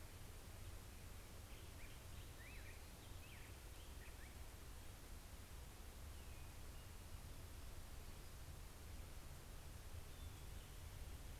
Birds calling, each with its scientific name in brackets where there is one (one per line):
Black-headed Grosbeak (Pheucticus melanocephalus)